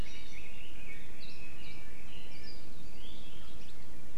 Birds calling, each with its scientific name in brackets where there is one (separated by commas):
Red-billed Leiothrix (Leiothrix lutea), Hawaii Akepa (Loxops coccineus)